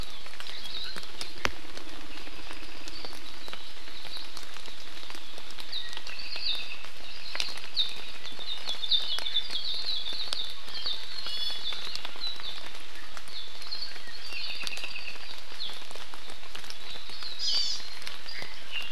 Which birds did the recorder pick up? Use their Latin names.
Himatione sanguinea, Loxops coccineus, Drepanis coccinea, Chlorodrepanis virens